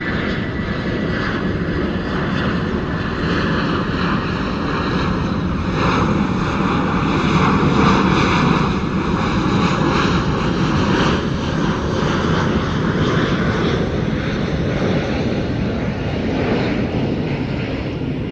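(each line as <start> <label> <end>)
0.0 Metallic rustling sound of an airplane growing louder as it flies past and gradually decreasing. 18.3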